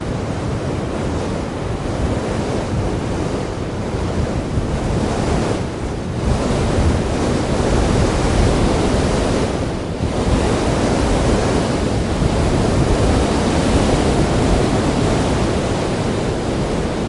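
0.0s Wind blowing steadily in a natural outdoor environment, creating a calming yet dynamic ambient atmosphere. 17.1s

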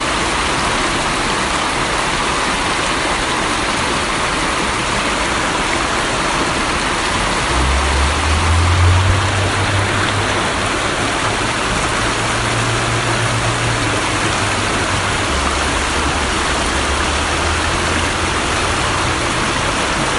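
0.0s A nearby river flows loudly and continuously. 20.2s
7.5s A vehicle passes by with a deep engine rumble in the distance. 20.2s

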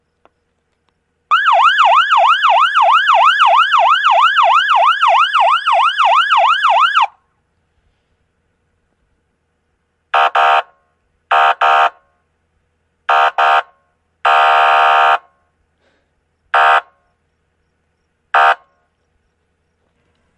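1.2s A high-pitched siren is sounding repeatedly. 7.2s
10.1s Low-pitched siren sounds with long pauses. 18.7s

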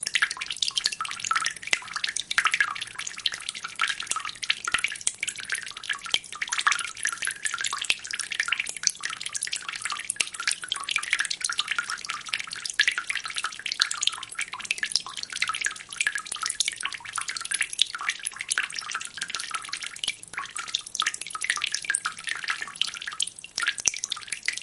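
0.0s Water dripping into a basin. 24.6s

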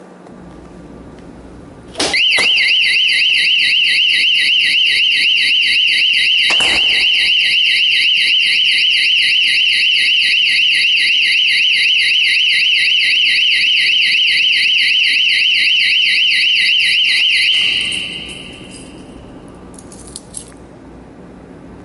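2.1s An alarm is going off. 18.0s

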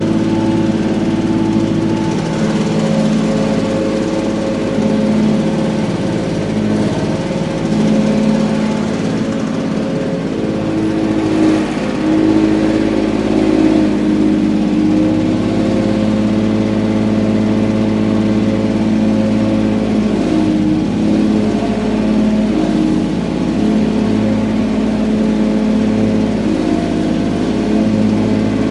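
0.0s Loud, continuous buzzing and humming of a lawn mower outdoors. 28.7s

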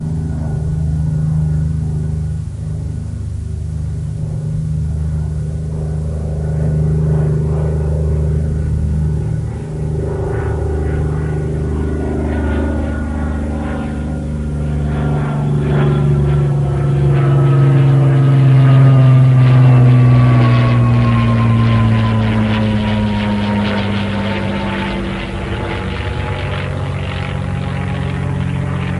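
0.0s An airplane flying overhead, muffled at first and gradually getting louder. 29.0s

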